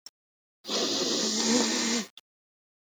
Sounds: Sniff